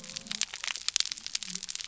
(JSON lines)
{"label": "biophony", "recorder": "SoundTrap 300"}